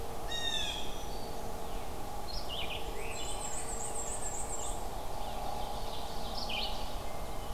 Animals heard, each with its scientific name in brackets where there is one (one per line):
Wood Thrush (Hylocichla mustelina)
Black-and-white Warbler (Mniotilta varia)
Ovenbird (Seiurus aurocapilla)
Blue Jay (Cyanocitta cristata)
Black-throated Green Warbler (Setophaga virens)